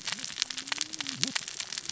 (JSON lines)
{"label": "biophony, cascading saw", "recorder": "SoundTrap 600 or HydroMoth"}